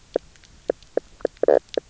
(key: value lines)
label: biophony, knock croak
recorder: SoundTrap 300